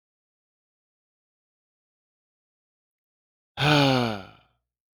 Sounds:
Sigh